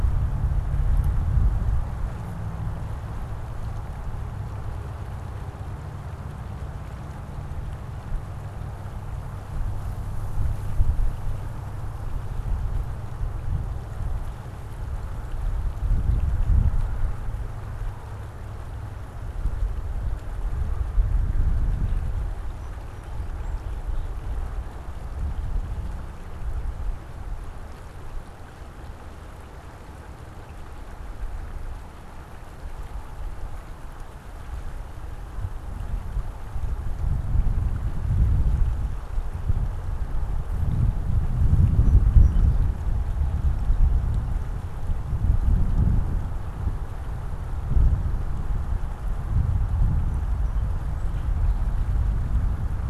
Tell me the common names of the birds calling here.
Song Sparrow